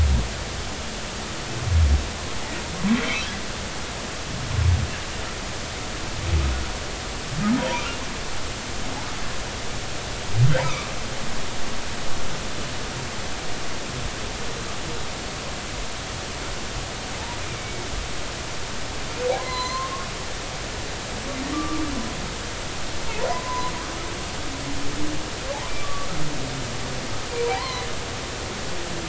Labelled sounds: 10.6	10.9	humpback whale, 1.1 to 2.6 kHz
17.5	17.9	humpback whale, 2.1 to 2.3 kHz
19.4	20.1	humpback whale, 0.96 to 4.2 kHz
21.5	21.8	humpback whale, 1.1 to 1.4 kHz
23.3	23.7	humpback whale, 0.93 to 1.1 kHz
25.8	26.1	humpback whale, 1.1 to 1.2 kHz
27.5	27.9	humpback whale, 0.80 to 4.4 kHz

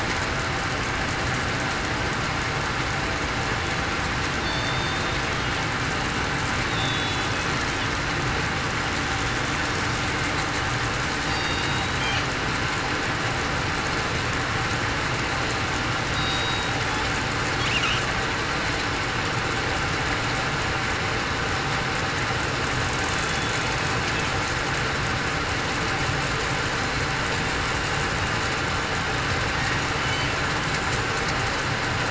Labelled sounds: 4.4	4.8	killer whale, southern resident, 4.4 to 4.5 kHz
6.7	7.2	killer whale, southern resident, 3.7 to 4.0 kHz
11.3	11.6	killer whale, southern resident, 2.8 to 2.9 kHz
16.1	16.7	killer whale, southern resident, 3.75 to 3.84 kHz

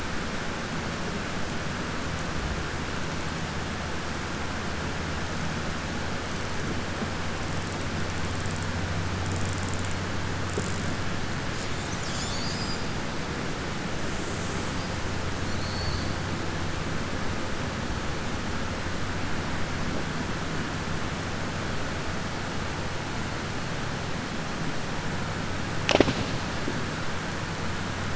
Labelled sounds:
15.4	16.1	killer whale, southern resident, 4.0 to 4.7 kHz

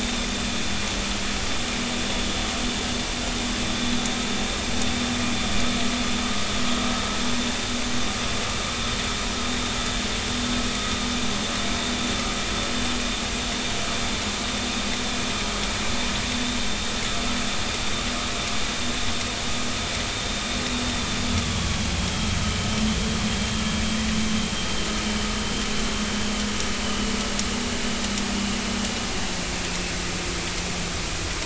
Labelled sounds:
21.4	21.8	vessel noise, 1.1 to 1.2 kHz
26.8	27.1	vessel noise, 2.9 to 3.1 kHz

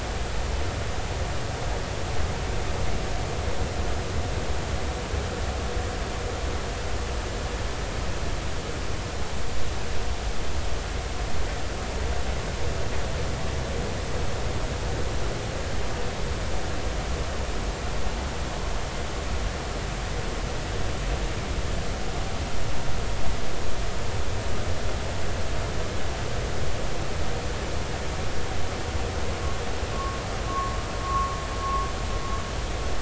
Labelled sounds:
29.9	30.2	vessel noise, 1.0 to 1.2 kHz
30.5	31.3	vessel noise, 1.0 to 1.2 kHz

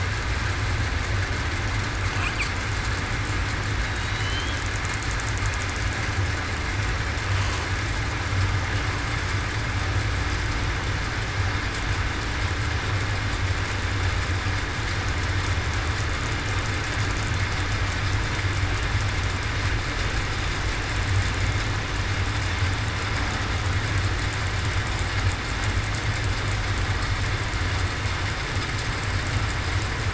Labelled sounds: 3.8	4.4	killer whale, southern resident, 3.8 to 4.2 kHz

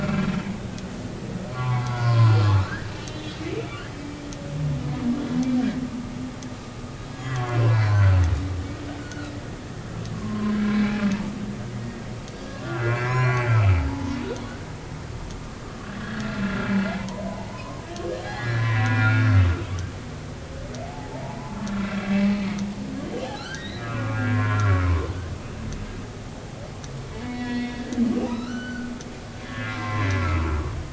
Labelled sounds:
1.5	2.3	humpback whale, 0.80 to 1.5 kHz
2.9	3.7	humpback whale, 2.2 to 3.9 kHz
7.1	8.2	humpback whale, 0.96 to 4.5 kHz
9.0	9.3	humpback whale, 1.2 to 1.5 kHz
10.1	11.1	humpback whale, 0.99 to 2.6 kHz
12.5	14.2	humpback whale, 0.80 to 5.8 kHz
16.0	17.8	humpback whale, 0.80 to 1.8 kHz
18.2	19.6	humpback whale, 1.1 to 3.7 kHz
20.8	21.5	humpback whale, 0.80 to 1.1 kHz
23.4	24.8	humpback whale, 0.93 to 4.2 kHz
27.2	28.9	humpback whale, 1.2 to 5.6 kHz
29.4	30.7	humpback whale, 0.90 to 2.1 kHz

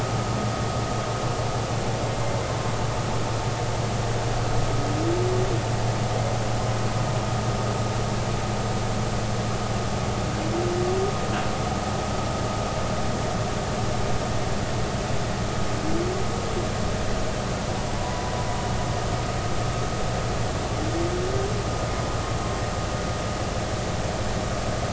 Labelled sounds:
18.0	18.3	humpback whale, 0.93 to 1.1 kHz

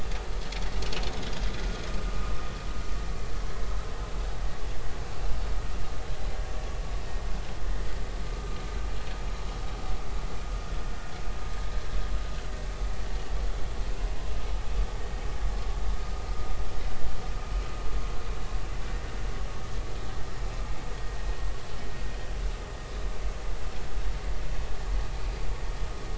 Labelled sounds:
8.2	8.6	vessel noise, 1.2 to 1.3 kHz

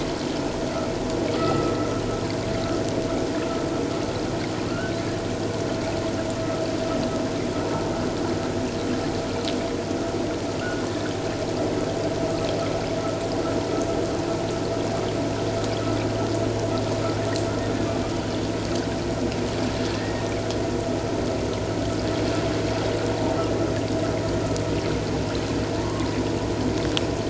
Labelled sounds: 1.3	1.7	humpback whale, 1.2 to 1.4 kHz
1.4	1.7	vessel noise, 1.9 to 2.1 kHz
4.7	5.0	humpback whale, 1.3 to 1.6 kHz
20.0	20.3	humpback whale, 1.8 to 1.9 kHz
25.8	26.2	humpback whale, 0.94 to 1.2 kHz

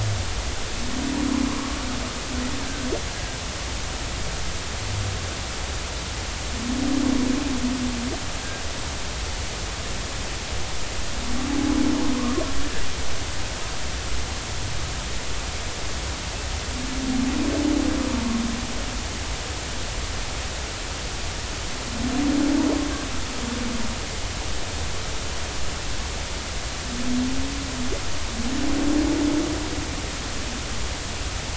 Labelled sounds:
2.6	3.4	humpback whale, 1.5 to 1.7 kHz

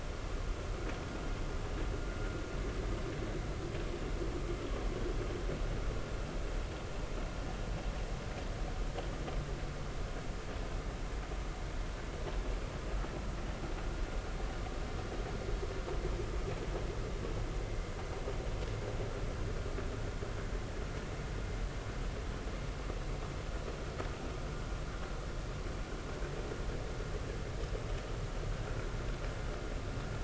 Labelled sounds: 17.7	17.9	vessel noise, 2.0 to 2.2 kHz

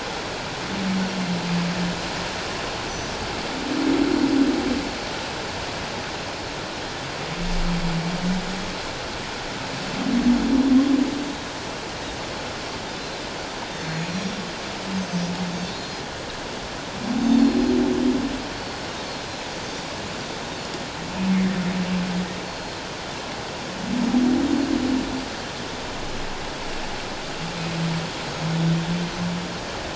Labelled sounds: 2.9	3.2	Pacific white-sided dolphin, 5.8 to 6.1 kHz
13.8	14.4	Pacific white-sided dolphin, 4.2 to 7.0 kHz
14.9	16.0	Pacific white-sided dolphin, 4.1 to 6.6 kHz
17.3	17.7	Pacific white-sided dolphin, 4.2 to 4.6 kHz
18.5	18.8	Pacific white-sided dolphin, 4.3 to 4.5 kHz
22.4	22.8	Pacific white-sided dolphin, 4.2 to 4.5 kHz

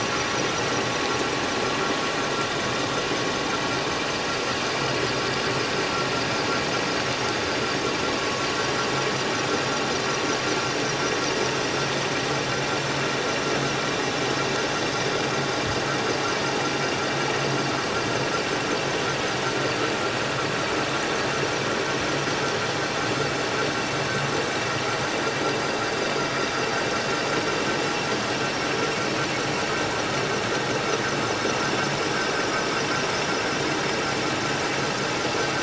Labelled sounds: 0.5	0.8	vessel noise, 5.3 to 5.5 kHz

